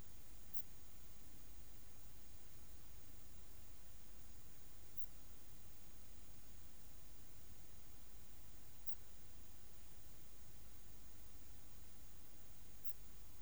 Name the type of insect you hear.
orthopteran